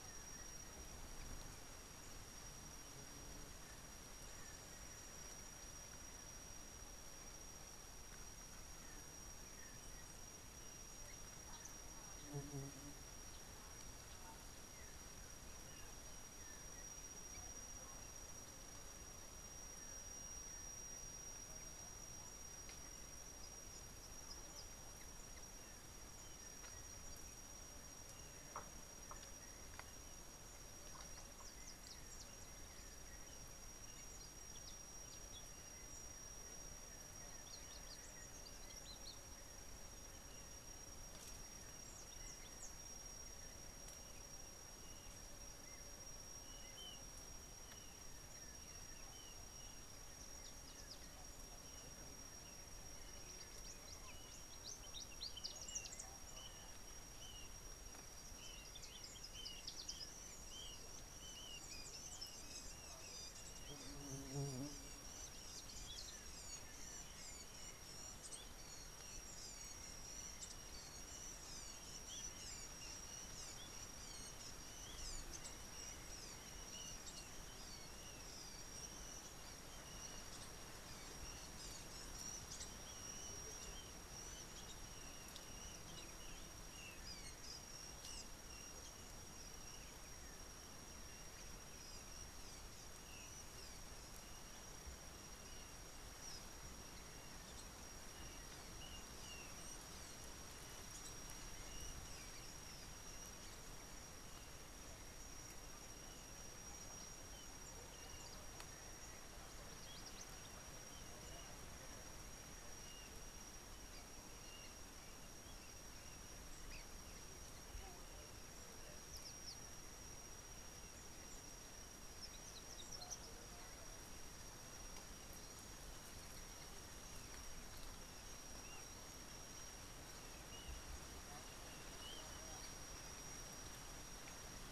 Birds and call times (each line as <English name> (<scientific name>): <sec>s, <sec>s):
Kikuyu White-eye (Zosterops kikuyuensis): 46.9s, 57.4s, 67.6s, 79.1s, 86.9s